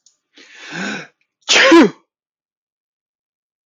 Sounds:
Sneeze